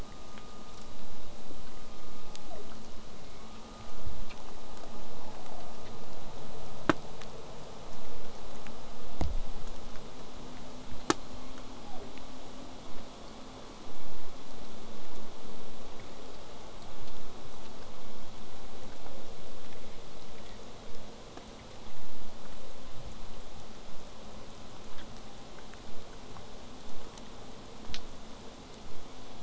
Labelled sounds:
1.9	2.8	killer whale, southern resident, J pod, call S01, 0.08 to 1.0 kHz
3.1	3.5	killer whale, southern resident, J pod, 1.9 to 2.4 kHz
11.3	12.3	killer whale, southern resident, J pod, call S01, 0.12 to 3.5 kHz
27.7	28.1	killer whale, southern resident, J pod, 0.24 to 1.4 kHz

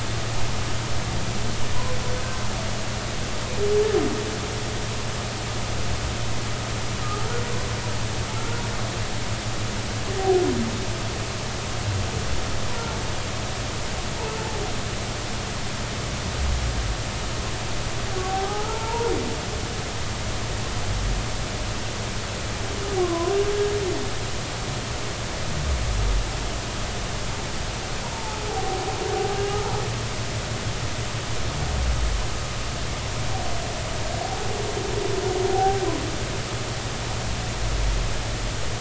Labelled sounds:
7.0	7.3	humpback whale, 1.2 to 1.3 kHz
8.3	8.6	humpback whale, 1.3 to 1.4 kHz
18.2	19.1	humpback whale, 0.80 to 1.4 kHz
23.0	23.3	humpback whale, 0.93 to 1.2 kHz
28.1	28.8	humpback whale, 0.80 to 0.96 kHz
35.5	35.8	humpback whale, 0.80 to 0.86 kHz

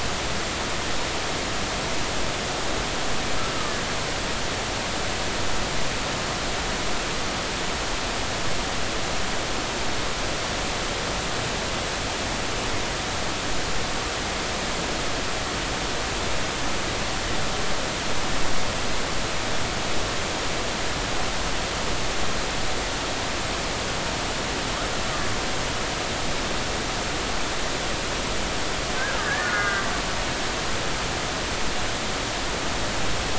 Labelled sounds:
29.0	29.8	killer whale, Bigg's (transient), 1.2 to 2.1 kHz

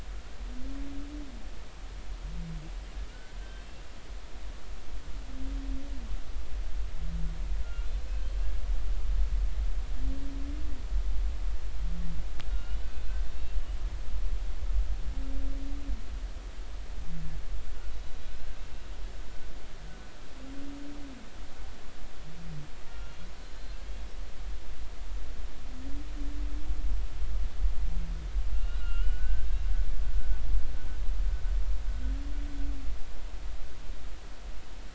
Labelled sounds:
3.1	3.8	humpback whale, 1.3 to 3.2 kHz
7.6	7.9	humpback whale, 1.3 to 1.5 kHz
12.5	12.8	humpback whale, 1.4 to 3.0 kHz
13.3	13.6	humpback whale, 2.6 to 2.8 kHz
17.9	18.9	humpback whale, 1.5 to 4.0 kHz
22.9	23.8	humpback whale, 1.3 to 4.2 kHz
28.5	29.5	humpback whale, 1.3 to 3.0 kHz

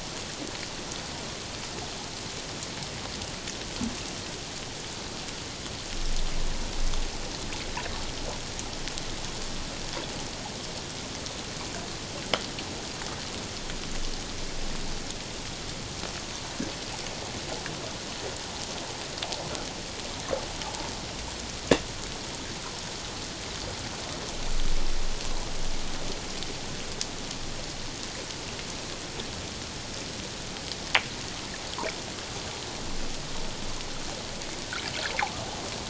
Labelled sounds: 20.6	20.9	water noise, 0.78 to 0.97 kHz

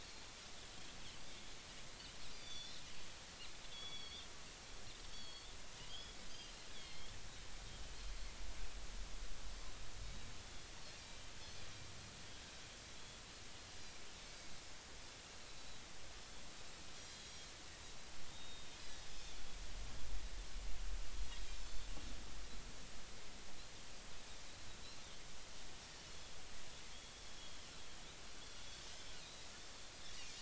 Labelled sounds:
2.3	4.3	Pacific white-sided dolphin, 2.2 to 5.9 kHz
5.1	7.1	Pacific white-sided dolphin, 2.0 to 4.6 kHz
10.4	10.7	Pacific white-sided dolphin, 3.4 to 3.6 kHz
17.1	17.4	Pacific white-sided dolphin, 3.2 to 4.1 kHz
18.3	19.4	Pacific white-sided dolphin, 3.4 to 3.8 kHz
21.2	21.9	Pacific white-sided dolphin, 3.2 to 7.2 kHz
29.1	29.4	Pacific white-sided dolphin, 3.6 to 4.3 kHz

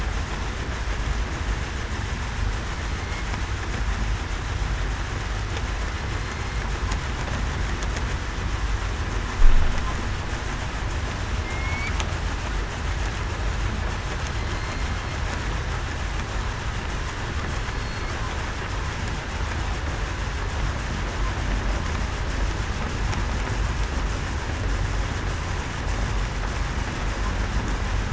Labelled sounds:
6.2	6.6	killer whale, southern resident, 4.1 to 4.3 kHz
11.4	11.9	killer whale, southern resident, 2.1 to 2.4 kHz
14.3	14.9	killer whale, southern resident, 4.1 to 4.3 kHz
17.7	18.1	killer whale, southern resident, 4.2 to 4.4 kHz

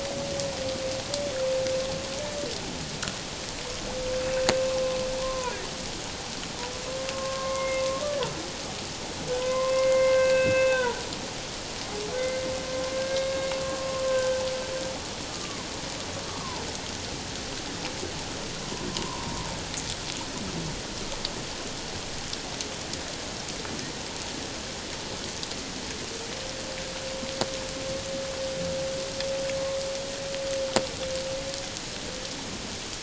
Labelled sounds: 5.2	5.6	humpback whale, 0.84 to 1.1 kHz
7.1	7.8	humpback whale, 0.91 to 2.2 kHz
9.4	11.0	humpback whale, 0.94 to 2.8 kHz
13.0	14.4	humpback whale, 1.4 to 2.2 kHz
15.3	15.6	humpback whale, 1.1 to 1.2 kHz
16.3	16.6	humpback whale, 0.84 to 1.3 kHz
18.9	19.4	humpback whale, 0.91 to 1.1 kHz

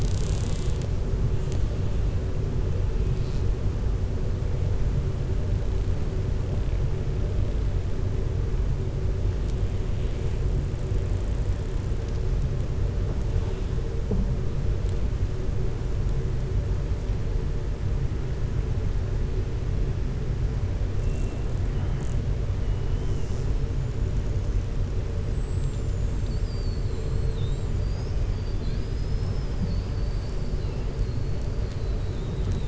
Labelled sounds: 26.8	27.8	killer whale, 6.9 to 8.0 kHz

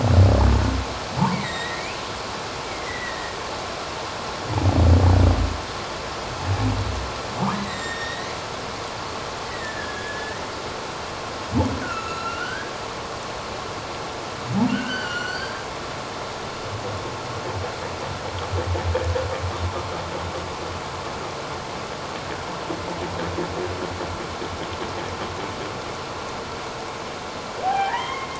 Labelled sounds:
1.3	2.0	humpback whale, 1.8 to 4.0 kHz
2.6	3.4	humpback whale, 1.8 to 2.3 kHz
7.5	8.3	humpback whale, 1.8 to 7.5 kHz
9.5	10.4	humpback whale, 1.6 to 2.0 kHz
11.8	12.7	humpback whale, 1.2 to 6.8 kHz
14.7	15.6	humpback whale, 1.4 to 7.4 kHz
27.6	28.3	humpback whale, 0.78 to 3.3 kHz

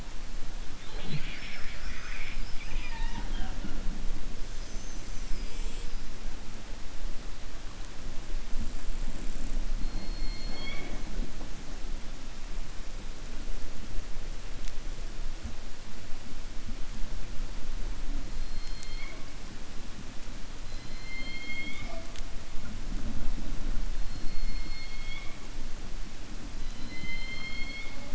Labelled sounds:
20.6	22.1	killer whale, 0.34 to 5.1 kHz
24.1	25.4	killer whale, 2.2 to 4.5 kHz
26.6	28.1	killer whale, 0.58 to 5.2 kHz

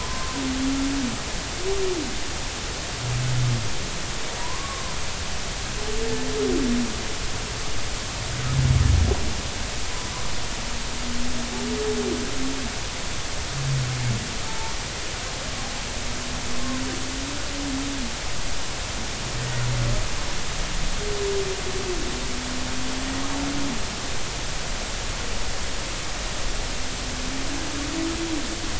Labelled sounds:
0.0	0.9	humpback whale, 0.93 to 1.1 kHz
4.4	5.0	humpback whale, 0.93 to 1.2 kHz
14.5	14.7	humpback whale, 0.83 to 1.0 kHz
19.4	19.6	humpback whale, 1.8 to 2.0 kHz

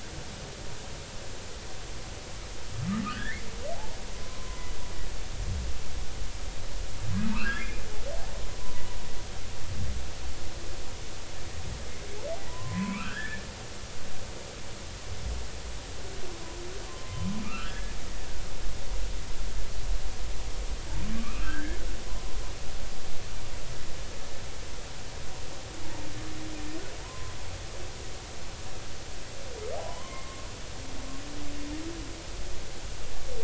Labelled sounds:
3.0	3.5	humpback whale, 1.1 to 2.3 kHz
4.2	4.7	humpback whale, 0.96 to 1.1 kHz
7.3	7.8	humpback whale, 0.86 to 2.8 kHz
8.6	8.9	humpback whale, 0.93 to 1.1 kHz
12.5	13.4	humpback whale, 0.90 to 2.8 kHz
16.9	18.0	humpback whale, 0.99 to 1.8 kHz
21.2	21.8	humpback whale, 1.1 to 1.8 kHz
27.0	27.3	humpback whale, 0.93 to 1.1 kHz
29.8	30.5	humpback whale, 0.80 to 1.1 kHz

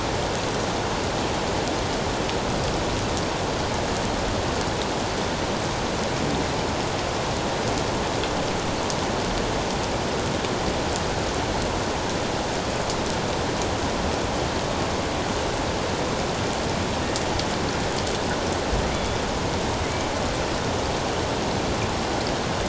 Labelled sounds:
18.9	19.2	killer whale, northern resident, G clan, 2.0 to 3.5 kHz

